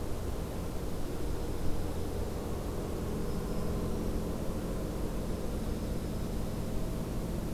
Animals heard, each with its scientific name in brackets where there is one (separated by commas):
Black-throated Green Warbler (Setophaga virens), Dark-eyed Junco (Junco hyemalis)